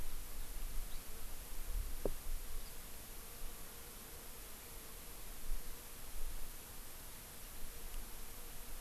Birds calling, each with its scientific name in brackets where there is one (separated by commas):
House Finch (Haemorhous mexicanus)